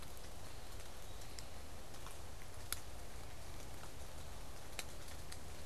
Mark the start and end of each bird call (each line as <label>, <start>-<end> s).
Eastern Wood-Pewee (Contopus virens), 0.1-1.7 s